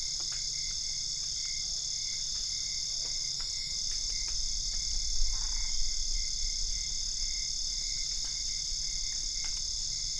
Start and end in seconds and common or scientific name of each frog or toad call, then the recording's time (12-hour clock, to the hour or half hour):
1.6	2.0	Physalaemus cuvieri
2.9	3.2	Physalaemus cuvieri
5.2	5.8	Boana albopunctata
~1am